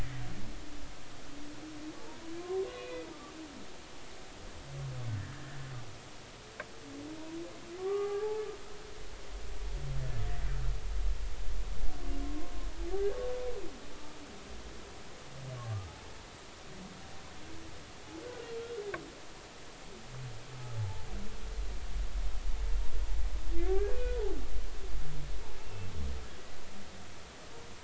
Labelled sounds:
2.4	3.1	humpback whale, 1.0 to 2.6 kHz
5.3	5.7	humpback whale, 1.6 to 1.9 kHz
7.8	8.4	humpback whale, 0.80 to 1.2 kHz
12.2	12.5	humpback whale, 0.99 to 1.2 kHz
15.6	15.9	humpback whale, 1.0 to 1.3 kHz
20.8	21.1	humpback whale, 0.80 to 0.96 kHz
23.7	24.2	humpback whale, 1.4 to 1.7 kHz
25.6	25.9	humpback whale, 2.6 to 2.8 kHz

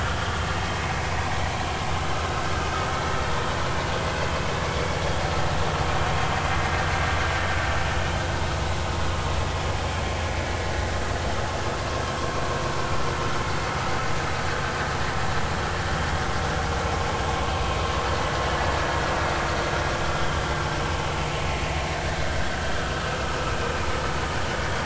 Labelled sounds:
23.1	23.4	vessel noise, 1.2 to 1.3 kHz

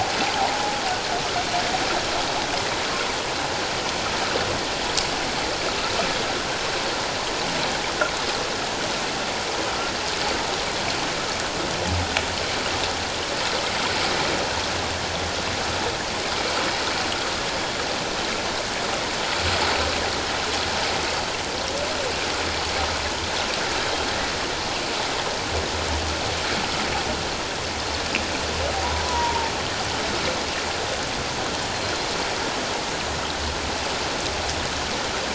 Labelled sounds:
29.0	29.5	humpback whale, 0.84 to 1.0 kHz
31.7	32.0	humpback whale, 4.1 to 4.3 kHz

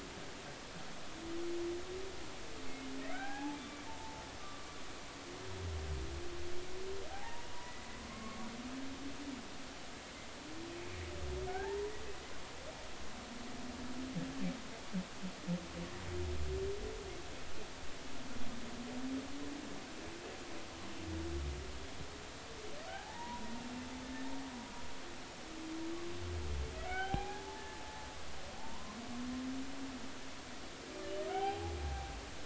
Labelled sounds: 3.1	4.8	humpback whale, 0.80 to 1.7 kHz
7.1	8.4	humpback whale, 0.80 to 2.1 kHz
12.5	12.8	humpback whale, 0.80 to 1.9 kHz
22.9	23.5	humpback whale, 0.80 to 1.8 kHz
24.0	24.3	humpback whale, 1.7 to 1.9 kHz
26.8	27.8	humpback whale, 0.80 to 3.3 kHz
28.6	29.0	humpback whale, 0.86 to 1.1 kHz
31.3	31.8	humpback whale, 0.80 to 3.2 kHz

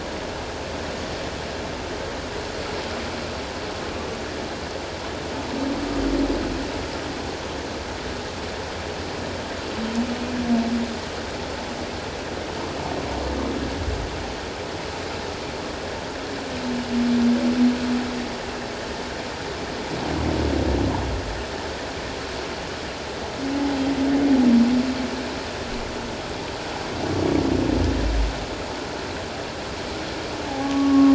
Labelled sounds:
30.5	31.1	humpback whale, 0.78 to 1.2 kHz

